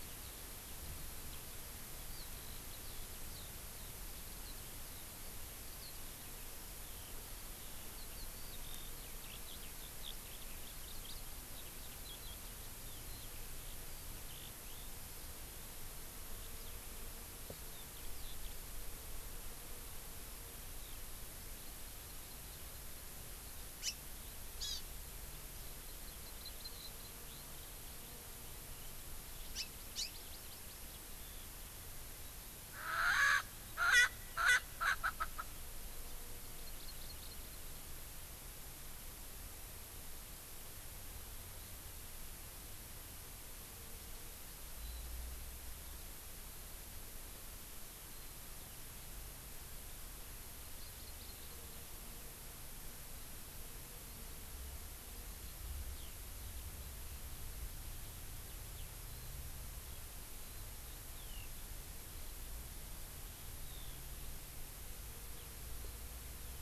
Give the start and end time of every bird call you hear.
0.0s-18.5s: Eurasian Skylark (Alauda arvensis)
20.8s-20.9s: Eurasian Skylark (Alauda arvensis)
21.7s-23.1s: Hawaii Amakihi (Chlorodrepanis virens)
23.8s-23.9s: House Finch (Haemorhous mexicanus)
24.6s-24.8s: Hawaii Amakihi (Chlorodrepanis virens)
25.5s-29.3s: Eurasian Skylark (Alauda arvensis)
25.9s-27.1s: Hawaii Amakihi (Chlorodrepanis virens)
29.4s-30.8s: Hawaii Amakihi (Chlorodrepanis virens)
29.5s-30.1s: House Finch (Haemorhous mexicanus)
32.7s-35.5s: Erckel's Francolin (Pternistis erckelii)
36.6s-37.8s: Hawaii Amakihi (Chlorodrepanis virens)
44.8s-45.0s: Warbling White-eye (Zosterops japonicus)
50.8s-51.6s: Hawaii Amakihi (Chlorodrepanis virens)
55.3s-56.9s: Eurasian Skylark (Alauda arvensis)
58.7s-58.9s: Eurasian Skylark (Alauda arvensis)
59.0s-59.3s: Warbling White-eye (Zosterops japonicus)
60.4s-60.7s: Warbling White-eye (Zosterops japonicus)
61.1s-61.5s: Eurasian Skylark (Alauda arvensis)
63.6s-64.0s: Eurasian Skylark (Alauda arvensis)

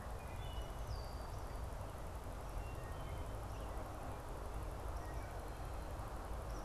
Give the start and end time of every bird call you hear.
0.0s-6.6s: Wood Thrush (Hylocichla mustelina)
0.8s-1.4s: Red-winged Blackbird (Agelaius phoeniceus)

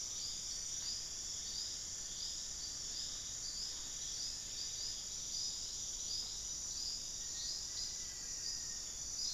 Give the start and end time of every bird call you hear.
0.0s-5.3s: unidentified bird
6.8s-9.3s: Black-faced Antthrush (Formicarius analis)

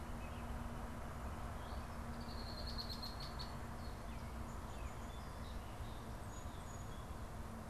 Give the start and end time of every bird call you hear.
2.0s-3.8s: Red-winged Blackbird (Agelaius phoeniceus)
4.0s-7.2s: Song Sparrow (Melospiza melodia)

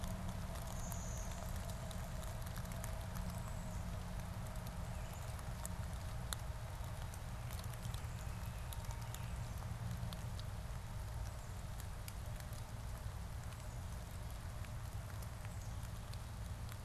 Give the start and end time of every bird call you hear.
0.6s-2.6s: Blue-winged Warbler (Vermivora cyanoptera)
3.0s-9.3s: Black-capped Chickadee (Poecile atricapillus)

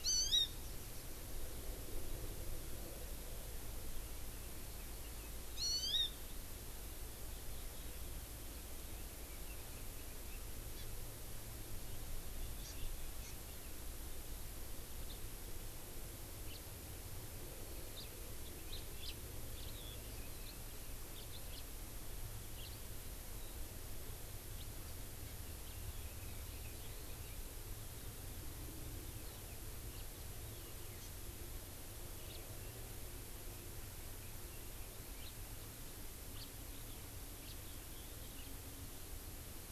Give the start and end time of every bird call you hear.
0.0s-0.5s: Hawaii Amakihi (Chlorodrepanis virens)
5.5s-6.1s: Hawaii Amakihi (Chlorodrepanis virens)
9.2s-10.4s: Chinese Hwamei (Garrulax canorus)
10.7s-10.9s: Hawaii Amakihi (Chlorodrepanis virens)
12.6s-12.7s: Hawaii Amakihi (Chlorodrepanis virens)
13.2s-13.3s: Hawaii Amakihi (Chlorodrepanis virens)
15.1s-15.2s: House Finch (Haemorhous mexicanus)
16.5s-16.6s: House Finch (Haemorhous mexicanus)
18.0s-18.1s: House Finch (Haemorhous mexicanus)
18.7s-19.1s: House Finch (Haemorhous mexicanus)
19.6s-19.7s: House Finch (Haemorhous mexicanus)
21.1s-21.6s: House Finch (Haemorhous mexicanus)
22.5s-22.7s: House Finch (Haemorhous mexicanus)
25.5s-27.3s: Chinese Hwamei (Garrulax canorus)
29.9s-30.0s: House Finch (Haemorhous mexicanus)
31.0s-31.1s: Hawaii Amakihi (Chlorodrepanis virens)
32.3s-32.4s: House Finch (Haemorhous mexicanus)
35.1s-35.3s: House Finch (Haemorhous mexicanus)
36.3s-36.5s: House Finch (Haemorhous mexicanus)
37.4s-37.5s: House Finch (Haemorhous mexicanus)

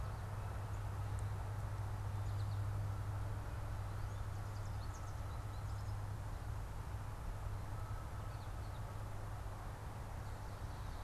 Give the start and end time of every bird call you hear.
4.5s-6.2s: American Goldfinch (Spinus tristis)

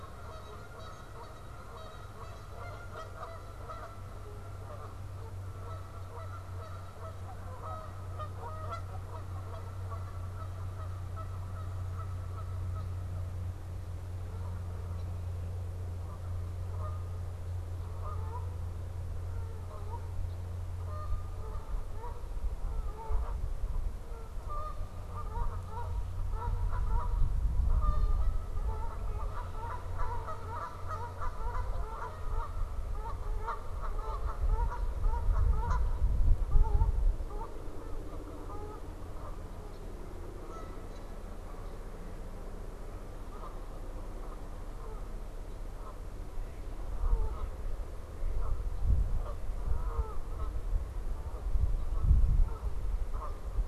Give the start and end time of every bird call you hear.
0.0s-53.7s: Canada Goose (Branta canadensis)
46.2s-48.5s: Mallard (Anas platyrhynchos)

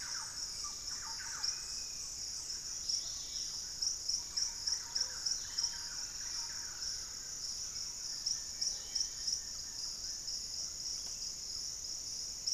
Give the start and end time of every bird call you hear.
0.0s-1.8s: Thrush-like Wren (Campylorhynchus turdinus)
0.0s-9.8s: Hauxwell's Thrush (Turdus hauxwelli)
1.2s-2.3s: Dusky-capped Flycatcher (Myiarchus tuberculifer)
2.6s-3.8s: Dusky-capped Greenlet (Pachysylvia hypoxantha)
2.7s-3.9s: unidentified bird
4.1s-7.1s: Thrush-like Wren (Campylorhynchus turdinus)
7.4s-11.3s: Thrush-like Wren (Campylorhynchus turdinus)
8.1s-10.5s: Wing-barred Piprites (Piprites chloris)

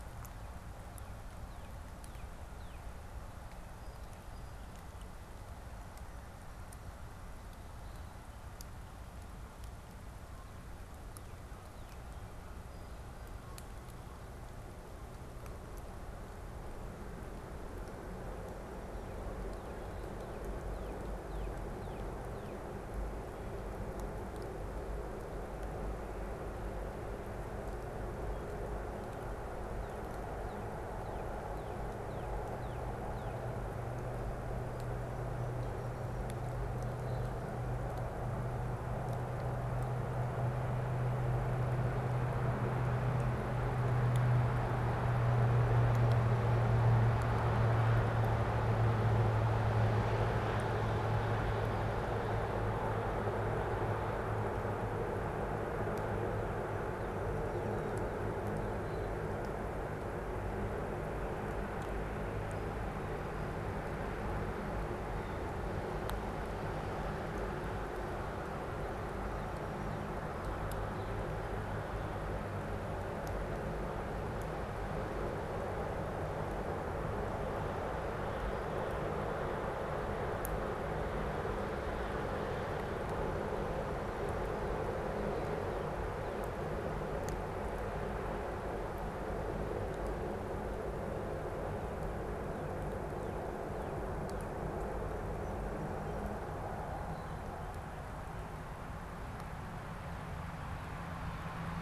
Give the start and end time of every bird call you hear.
0.3s-3.0s: Northern Cardinal (Cardinalis cardinalis)
3.7s-5.2s: Song Sparrow (Melospiza melodia)
19.5s-22.9s: Northern Cardinal (Cardinalis cardinalis)
29.6s-33.6s: Northern Cardinal (Cardinalis cardinalis)
56.4s-58.9s: Northern Cardinal (Cardinalis cardinalis)
65.0s-65.6s: Blue Jay (Cyanocitta cristata)
68.6s-71.3s: Northern Cardinal (Cardinalis cardinalis)
84.1s-86.6s: Blue Jay (Cyanocitta cristata)

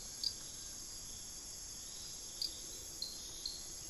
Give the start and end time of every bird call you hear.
0.0s-1.0s: Fasciated Antshrike (Cymbilaimus lineatus)
0.0s-3.9s: Hauxwell's Thrush (Turdus hauxwelli)

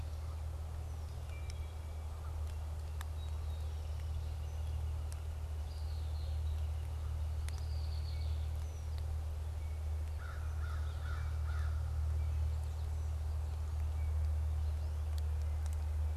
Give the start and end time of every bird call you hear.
1.2s-2.0s: Wood Thrush (Hylocichla mustelina)
2.9s-5.1s: Song Sparrow (Melospiza melodia)
3.6s-7.3s: Northern Flicker (Colaptes auratus)
5.3s-7.0s: Red-winged Blackbird (Agelaius phoeniceus)
7.3s-9.3s: Red-winged Blackbird (Agelaius phoeniceus)
10.0s-12.2s: American Crow (Corvus brachyrhynchos)
13.7s-14.7s: Wood Thrush (Hylocichla mustelina)

